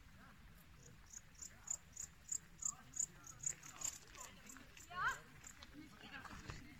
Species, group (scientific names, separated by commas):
Pholidoptera aptera, Orthoptera